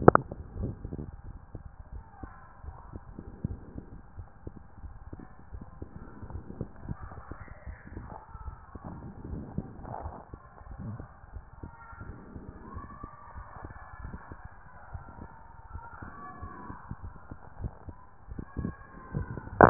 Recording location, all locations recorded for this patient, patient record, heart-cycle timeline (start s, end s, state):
tricuspid valve (TV)
tricuspid valve (TV)
#Age: Child
#Sex: Female
#Height: 146.0 cm
#Weight: 50.2 kg
#Pregnancy status: False
#Murmur: Unknown
#Murmur locations: nan
#Most audible location: nan
#Systolic murmur timing: nan
#Systolic murmur shape: nan
#Systolic murmur grading: nan
#Systolic murmur pitch: nan
#Systolic murmur quality: nan
#Diastolic murmur timing: nan
#Diastolic murmur shape: nan
#Diastolic murmur grading: nan
#Diastolic murmur pitch: nan
#Diastolic murmur quality: nan
#Outcome: Abnormal
#Campaign: 2014 screening campaign
0.00	1.26	unannotated
1.26	1.35	S1
1.35	1.54	systole
1.54	1.61	S2
1.61	1.95	diastole
1.95	2.03	S1
2.03	2.21	systole
2.21	2.27	S2
2.27	2.65	diastole
2.65	2.74	S1
2.74	2.91	systole
2.91	2.98	S2
2.98	3.44	diastole
3.44	3.54	S1
3.54	3.74	systole
3.74	3.81	S2
3.81	4.16	diastole
4.16	4.24	S1
4.24	4.43	systole
4.43	4.51	S2
4.51	4.83	diastole
4.83	19.70	unannotated